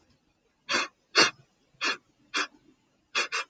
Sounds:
Sniff